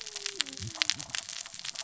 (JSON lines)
{"label": "biophony, cascading saw", "recorder": "SoundTrap 600 or HydroMoth"}